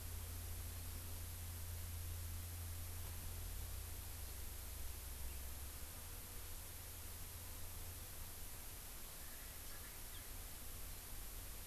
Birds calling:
Erckel's Francolin (Pternistis erckelii)

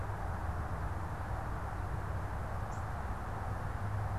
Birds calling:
unidentified bird

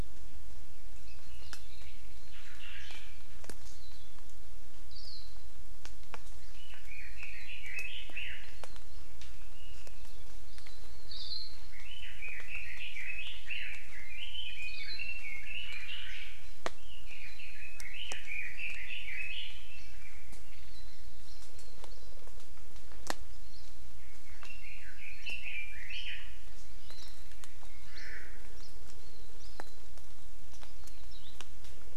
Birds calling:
Red-billed Leiothrix (Leiothrix lutea)
Warbling White-eye (Zosterops japonicus)
Omao (Myadestes obscurus)

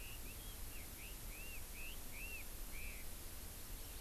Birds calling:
Chinese Hwamei (Garrulax canorus)

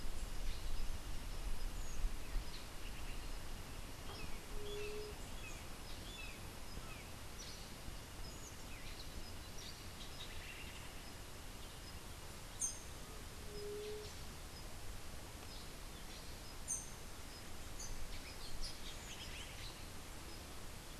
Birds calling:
White-tipped Dove (Leptotila verreauxi)
Black-headed Saltator (Saltator atriceps)
unidentified bird
Brown Jay (Psilorhinus morio)

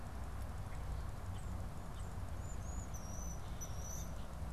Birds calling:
European Starling (Sturnus vulgaris)

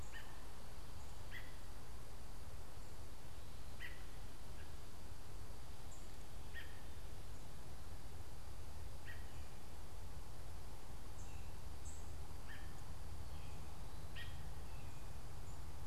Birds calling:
unidentified bird
American Robin (Turdus migratorius)

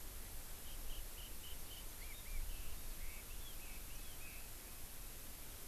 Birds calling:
Chinese Hwamei (Garrulax canorus)

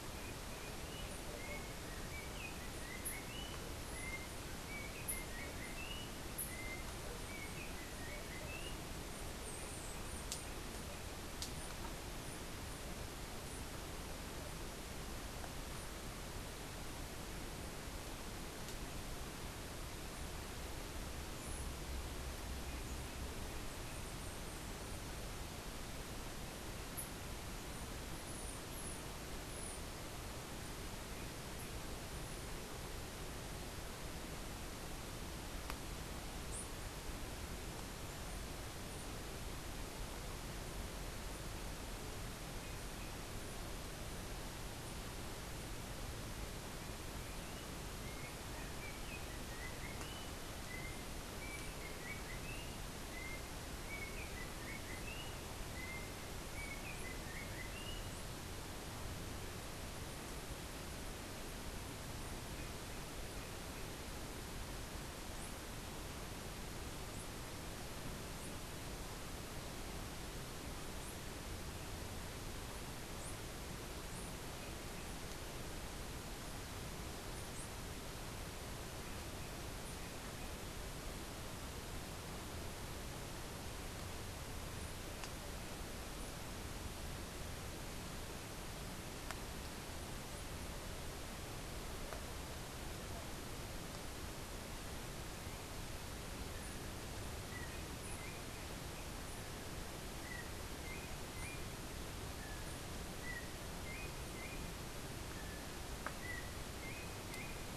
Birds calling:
Yellow-backed Oriole (Icterus chrysater)

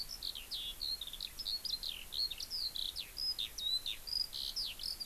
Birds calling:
Eurasian Skylark (Alauda arvensis)

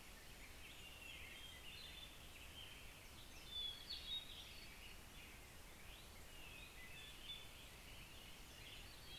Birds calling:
Golden-crowned Kinglet (Regulus satrapa)
American Robin (Turdus migratorius)
Hermit Thrush (Catharus guttatus)

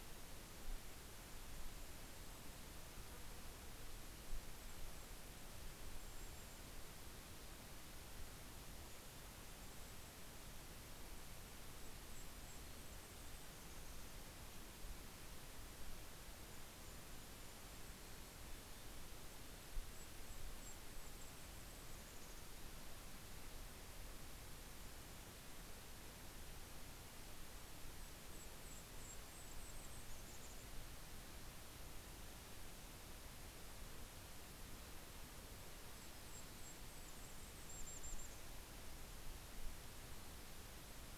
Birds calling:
Yellow-rumped Warbler (Setophaga coronata)
Golden-crowned Kinglet (Regulus satrapa)

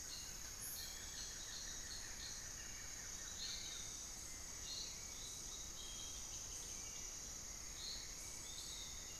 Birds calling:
Buff-throated Woodcreeper (Xiphorhynchus guttatus)
Hauxwell's Thrush (Turdus hauxwelli)
Piratic Flycatcher (Legatus leucophaius)

